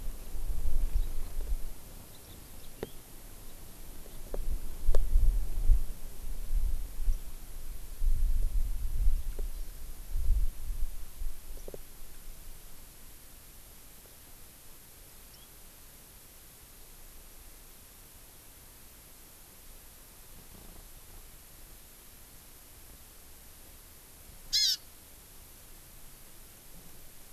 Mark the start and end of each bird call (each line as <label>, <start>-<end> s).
House Finch (Haemorhous mexicanus), 2.6-3.0 s
Hawaii Amakihi (Chlorodrepanis virens), 9.5-9.8 s
House Finch (Haemorhous mexicanus), 15.3-15.5 s
Hawaii Amakihi (Chlorodrepanis virens), 24.6-24.8 s